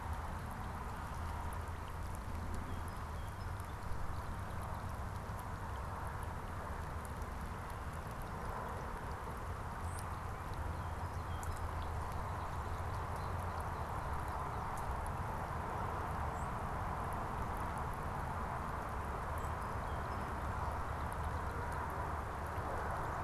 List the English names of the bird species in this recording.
Song Sparrow, unidentified bird